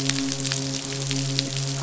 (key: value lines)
label: biophony, midshipman
recorder: SoundTrap 500